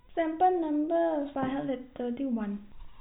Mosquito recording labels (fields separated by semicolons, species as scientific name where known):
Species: no mosquito; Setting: cup